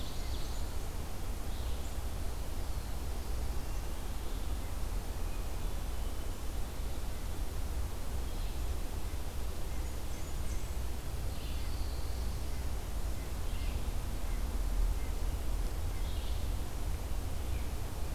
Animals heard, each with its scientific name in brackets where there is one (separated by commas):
Red-breasted Nuthatch (Sitta canadensis), Red-eyed Vireo (Vireo olivaceus), Ovenbird (Seiurus aurocapilla), Blackburnian Warbler (Setophaga fusca), Black-throated Blue Warbler (Setophaga caerulescens), Hermit Thrush (Catharus guttatus), Pine Warbler (Setophaga pinus)